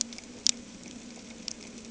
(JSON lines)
{"label": "anthrophony, boat engine", "recorder": "HydroMoth"}